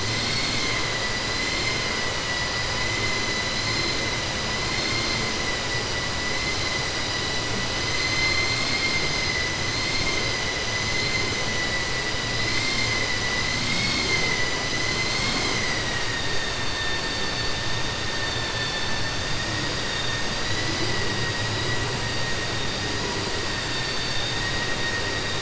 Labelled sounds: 8.0	9.0	vessel noise, 1.2 to 5.3 kHz
18.2	19.1	vessel noise, 1.8 to 5.2 kHz

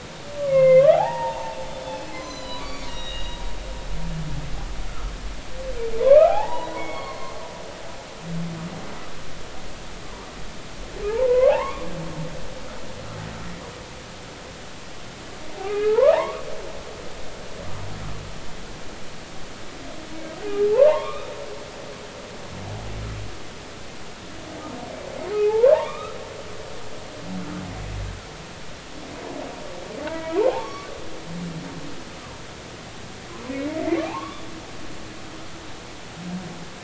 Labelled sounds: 0.4	1.6	humpback whale, 0.80 to 2.8 kHz
1.9	3.4	humpback whale, 0.93 to 7.7 kHz
6.0	7.4	humpback whale, 0.80 to 4.5 kHz
11.1	11.9	humpback whale, 0.80 to 2.5 kHz
15.6	16.4	humpback whale, 0.80 to 2.6 kHz
20.7	21.4	humpback whale, 0.83 to 3.8 kHz
25.3	26.2	humpback whale, 0.80 to 3.9 kHz
30.2	30.9	humpback whale, 0.80 to 4.5 kHz
34.0	34.5	humpback whale, 0.80 to 3.6 kHz

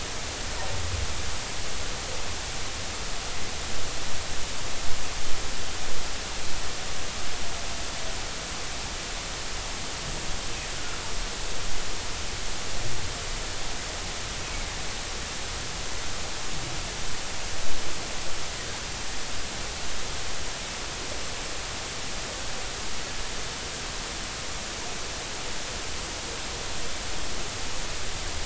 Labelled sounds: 10.7	11.0	humpback whale, 1.3 to 1.6 kHz

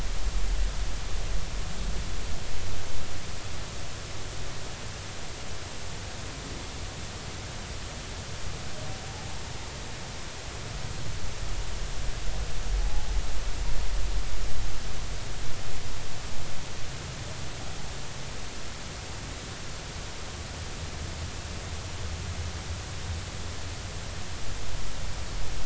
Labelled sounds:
9.1	9.4	humpback whale, 0.80 to 0.96 kHz
12.8	13.1	humpback whale, 0.80 to 0.90 kHz

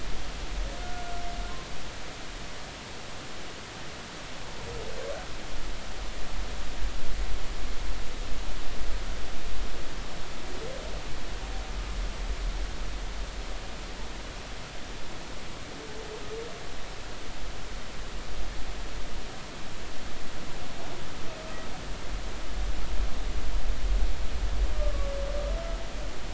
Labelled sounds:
0.8	1.0	humpback whale, 1.4 to 1.5 kHz

